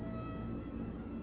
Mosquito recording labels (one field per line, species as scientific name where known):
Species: Culex quinquefasciatus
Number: one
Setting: insect culture